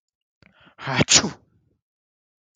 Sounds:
Sneeze